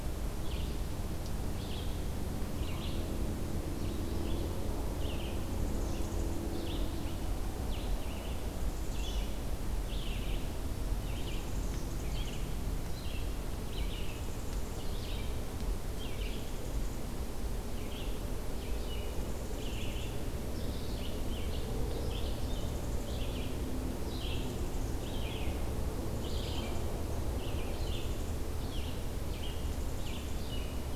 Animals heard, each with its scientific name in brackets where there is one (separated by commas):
unidentified call, Red-eyed Vireo (Vireo olivaceus)